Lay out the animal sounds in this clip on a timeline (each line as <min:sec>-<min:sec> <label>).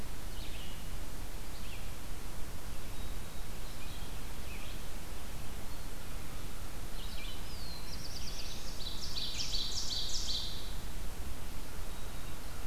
0:00.0-0:09.5 Red-eyed Vireo (Vireo olivaceus)
0:02.8-0:03.6 Black-throated Green Warbler (Setophaga virens)
0:07.3-0:09.1 Black-throated Blue Warbler (Setophaga caerulescens)
0:08.4-0:10.9 Ovenbird (Seiurus aurocapilla)
0:11.7-0:12.5 Black-throated Green Warbler (Setophaga virens)